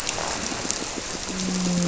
{"label": "biophony, grouper", "recorder": "SoundTrap 300"}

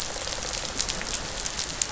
{"label": "biophony, rattle response", "recorder": "SoundTrap 500"}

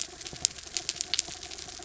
{"label": "anthrophony, mechanical", "recorder": "SoundTrap 300"}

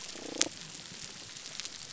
{"label": "biophony, damselfish", "recorder": "SoundTrap 300"}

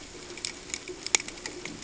{"label": "ambient", "recorder": "HydroMoth"}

